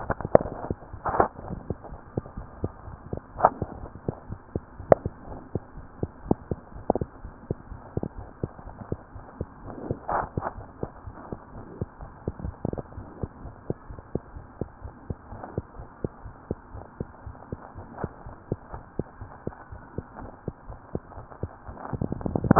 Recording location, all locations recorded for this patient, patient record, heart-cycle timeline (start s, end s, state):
mitral valve (MV)
aortic valve (AV)+pulmonary valve (PV)+tricuspid valve (TV)+mitral valve (MV)
#Age: Child
#Sex: Female
#Height: 98.0 cm
#Weight: 17.66 kg
#Pregnancy status: False
#Murmur: Absent
#Murmur locations: nan
#Most audible location: nan
#Systolic murmur timing: nan
#Systolic murmur shape: nan
#Systolic murmur grading: nan
#Systolic murmur pitch: nan
#Systolic murmur quality: nan
#Diastolic murmur timing: nan
#Diastolic murmur shape: nan
#Diastolic murmur grading: nan
#Diastolic murmur pitch: nan
#Diastolic murmur quality: nan
#Outcome: Abnormal
#Campaign: 2015 screening campaign
0.00	4.28	unannotated
4.28	4.40	S1
4.40	4.52	systole
4.52	4.62	S2
4.62	4.78	diastole
4.78	4.92	S1
4.92	5.04	systole
5.04	5.16	S2
5.16	5.26	diastole
5.26	5.40	S1
5.40	5.54	systole
5.54	5.64	S2
5.64	5.76	diastole
5.76	5.86	S1
5.86	5.98	systole
5.98	6.10	S2
6.10	6.24	diastole
6.24	6.38	S1
6.38	6.48	systole
6.48	6.58	S2
6.58	6.74	diastole
6.74	6.84	S1
6.84	6.94	systole
6.94	7.08	S2
7.08	7.22	diastole
7.22	7.32	S1
7.32	7.48	systole
7.48	7.58	S2
7.58	7.70	diastole
7.70	7.82	S1
7.82	7.90	systole
7.90	8.04	S2
8.04	8.16	diastole
8.16	8.27	S1
8.27	8.40	systole
8.40	8.50	S2
8.50	8.64	diastole
8.64	8.78	S1
8.78	8.90	systole
8.90	9.00	S2
9.00	9.16	diastole
9.16	9.26	S1
9.26	9.38	systole
9.38	9.48	S2
9.48	9.64	diastole
9.64	9.76	S1
9.76	9.84	systole
9.84	9.98	S2
9.98	10.12	diastole
10.12	10.28	S1
10.28	10.34	systole
10.34	10.46	S2
10.46	10.56	diastole
10.56	10.70	S1
10.70	10.82	systole
10.82	10.90	S2
10.90	11.06	diastole
11.06	11.16	S1
11.16	11.28	systole
11.28	11.38	S2
11.38	11.54	diastole
11.54	11.66	S1
11.66	11.80	systole
11.80	11.87	S2
11.87	11.99	diastole
11.99	12.10	S1
12.10	12.24	systole
12.24	12.34	S2
12.34	22.59	unannotated